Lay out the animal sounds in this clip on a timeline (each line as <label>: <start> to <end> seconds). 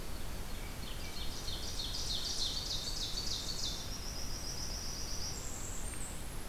Ovenbird (Seiurus aurocapilla): 0.6 to 3.9 seconds
Blackburnian Warbler (Setophaga fusca): 3.6 to 6.5 seconds